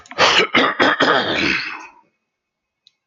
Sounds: Throat clearing